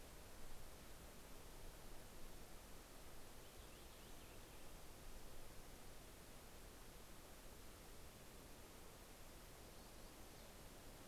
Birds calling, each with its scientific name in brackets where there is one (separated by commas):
Purple Finch (Haemorhous purpureus), Yellow-rumped Warbler (Setophaga coronata)